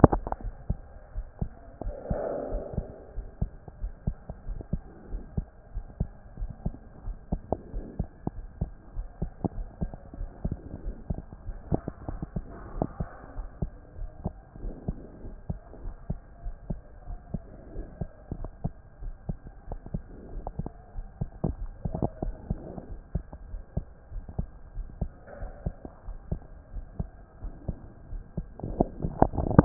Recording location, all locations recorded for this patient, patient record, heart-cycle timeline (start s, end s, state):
aortic valve (AV)
aortic valve (AV)+pulmonary valve (PV)+tricuspid valve (TV)+mitral valve (MV)
#Age: Child
#Sex: Male
#Height: 134.0 cm
#Weight: 28.5 kg
#Pregnancy status: False
#Murmur: Absent
#Murmur locations: nan
#Most audible location: nan
#Systolic murmur timing: nan
#Systolic murmur shape: nan
#Systolic murmur grading: nan
#Systolic murmur pitch: nan
#Systolic murmur quality: nan
#Diastolic murmur timing: nan
#Diastolic murmur shape: nan
#Diastolic murmur grading: nan
#Diastolic murmur pitch: nan
#Diastolic murmur quality: nan
#Outcome: Normal
#Campaign: 2014 screening campaign
0.00	1.02	unannotated
1.02	1.14	diastole
1.14	1.26	S1
1.26	1.40	systole
1.40	1.50	S2
1.50	1.84	diastole
1.84	1.94	S1
1.94	2.10	systole
2.10	2.20	S2
2.20	2.50	diastole
2.50	2.62	S1
2.62	2.76	systole
2.76	2.86	S2
2.86	3.16	diastole
3.16	3.28	S1
3.28	3.40	systole
3.40	3.50	S2
3.50	3.80	diastole
3.80	3.92	S1
3.92	4.06	systole
4.06	4.16	S2
4.16	4.48	diastole
4.48	4.60	S1
4.60	4.72	systole
4.72	4.82	S2
4.82	5.12	diastole
5.12	5.22	S1
5.22	5.36	systole
5.36	5.46	S2
5.46	5.74	diastole
5.74	5.86	S1
5.86	6.00	systole
6.00	6.10	S2
6.10	6.40	diastole
6.40	6.52	S1
6.52	6.64	systole
6.64	6.74	S2
6.74	7.06	diastole
7.06	7.16	S1
7.16	7.32	systole
7.32	7.40	S2
7.40	7.74	diastole
7.74	7.86	S1
7.86	7.98	systole
7.98	8.08	S2
8.08	8.36	diastole
8.36	8.48	S1
8.48	8.60	systole
8.60	8.70	S2
8.70	8.96	diastole
8.96	9.08	S1
9.08	9.20	systole
9.20	9.30	S2
9.30	9.56	diastole
9.56	9.68	S1
9.68	9.80	systole
9.80	9.90	S2
9.90	10.18	diastole
10.18	10.30	S1
10.30	10.44	systole
10.44	10.56	S2
10.56	10.84	diastole
10.84	10.96	S1
10.96	11.10	systole
11.10	11.20	S2
11.20	11.46	diastole
11.46	11.58	S1
11.58	11.70	systole
11.70	11.80	S2
11.80	12.08	diastole
12.08	12.20	S1
12.20	12.34	systole
12.34	12.44	S2
12.44	12.74	diastole
12.74	12.88	S1
12.88	13.00	systole
13.00	13.08	S2
13.08	13.36	diastole
13.36	13.48	S1
13.48	13.60	systole
13.60	13.72	S2
13.72	13.98	diastole
13.98	14.10	S1
14.10	14.24	systole
14.24	14.32	S2
14.32	14.62	diastole
14.62	14.74	S1
14.74	14.88	systole
14.88	14.98	S2
14.98	15.24	diastole
15.24	15.36	S1
15.36	15.50	systole
15.50	15.58	S2
15.58	15.84	diastole
15.84	15.94	S1
15.94	16.08	systole
16.08	16.18	S2
16.18	16.44	diastole
16.44	16.56	S1
16.56	16.68	systole
16.68	16.80	S2
16.80	17.08	diastole
17.08	17.18	S1
17.18	17.32	systole
17.32	17.42	S2
17.42	17.74	diastole
17.74	17.86	S1
17.86	18.00	systole
18.00	18.08	S2
18.08	18.36	diastole
18.36	18.50	S1
18.50	18.64	systole
18.64	18.72	S2
18.72	19.02	diastole
19.02	19.14	S1
19.14	19.28	systole
19.28	19.38	S2
19.38	19.70	diastole
19.70	19.80	S1
19.80	19.92	systole
19.92	20.02	S2
20.02	20.34	diastole
20.34	29.65	unannotated